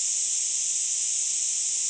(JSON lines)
{"label": "ambient", "recorder": "HydroMoth"}